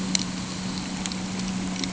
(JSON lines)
{"label": "anthrophony, boat engine", "recorder": "HydroMoth"}